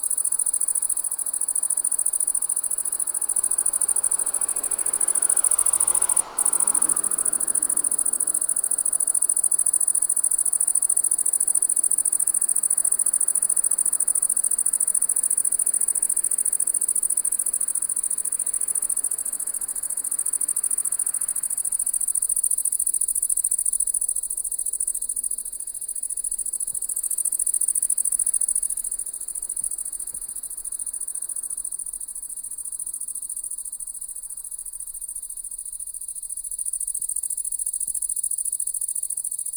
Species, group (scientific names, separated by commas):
Tettigonia viridissima, Orthoptera